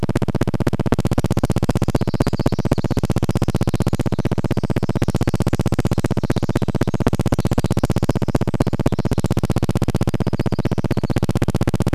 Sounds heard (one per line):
Pacific Wren song
Red-breasted Nuthatch song
recorder noise